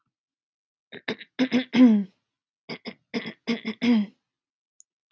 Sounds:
Throat clearing